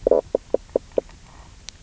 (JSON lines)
{"label": "biophony, knock croak", "recorder": "SoundTrap 300"}